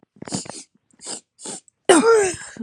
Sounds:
Sniff